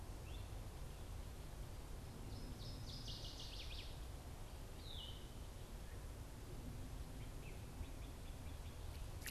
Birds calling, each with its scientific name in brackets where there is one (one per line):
Northern Waterthrush (Parkesia noveboracensis)
Yellow-throated Vireo (Vireo flavifrons)